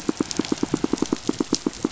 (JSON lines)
{"label": "biophony, pulse", "recorder": "SoundTrap 500"}